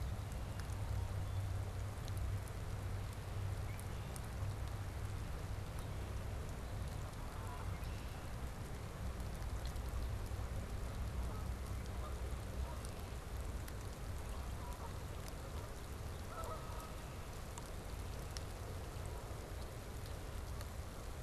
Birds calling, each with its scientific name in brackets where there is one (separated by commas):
Canada Goose (Branta canadensis), Red-winged Blackbird (Agelaius phoeniceus)